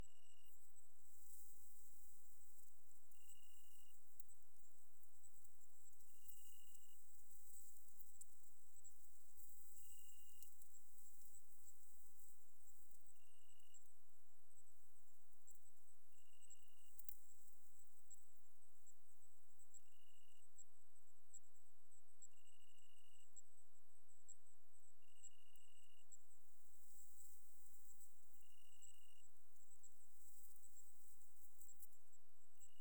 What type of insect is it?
orthopteran